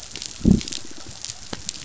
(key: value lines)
label: biophony, pulse
recorder: SoundTrap 500

label: biophony, growl
recorder: SoundTrap 500